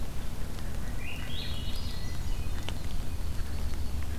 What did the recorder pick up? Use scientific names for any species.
Catharus ustulatus, Catharus guttatus, Setophaga coronata